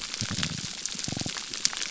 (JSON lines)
{"label": "biophony", "recorder": "SoundTrap 300"}